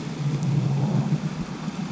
{"label": "anthrophony, boat engine", "recorder": "SoundTrap 500"}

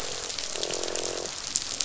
{"label": "biophony, croak", "recorder": "SoundTrap 500"}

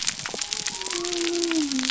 {"label": "biophony", "recorder": "SoundTrap 300"}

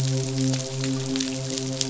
{"label": "biophony, midshipman", "recorder": "SoundTrap 500"}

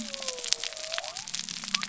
{"label": "biophony", "recorder": "SoundTrap 300"}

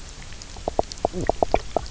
{"label": "biophony, knock croak", "recorder": "SoundTrap 300"}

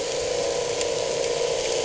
{"label": "anthrophony, boat engine", "recorder": "HydroMoth"}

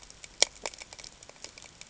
{"label": "ambient", "recorder": "HydroMoth"}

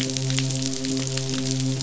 {"label": "biophony, midshipman", "recorder": "SoundTrap 500"}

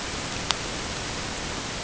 {"label": "ambient", "recorder": "HydroMoth"}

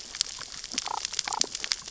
{"label": "biophony, damselfish", "recorder": "SoundTrap 600 or HydroMoth"}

